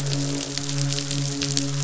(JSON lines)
{"label": "biophony, midshipman", "recorder": "SoundTrap 500"}